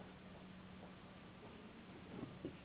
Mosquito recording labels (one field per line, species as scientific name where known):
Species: Anopheles gambiae s.s.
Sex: female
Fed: unfed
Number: one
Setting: insect culture